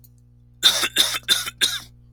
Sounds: Cough